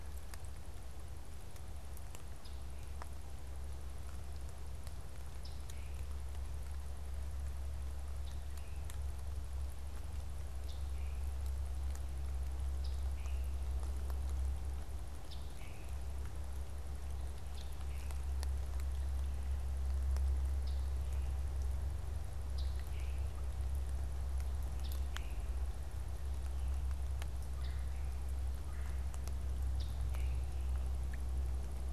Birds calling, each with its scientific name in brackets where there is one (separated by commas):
Scarlet Tanager (Piranga olivacea), Red-bellied Woodpecker (Melanerpes carolinus)